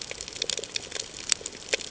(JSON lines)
{"label": "ambient", "recorder": "HydroMoth"}